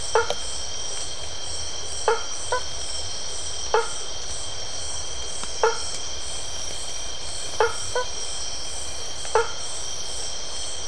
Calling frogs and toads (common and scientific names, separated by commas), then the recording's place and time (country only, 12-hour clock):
blacksmith tree frog (Boana faber)
Brazil, 9:45pm